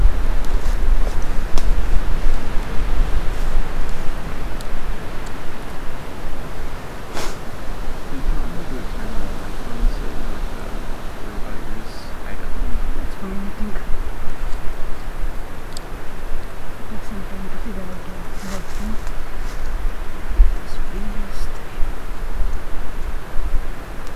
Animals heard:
forest ambience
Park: Hubbard Brook Experimental Forest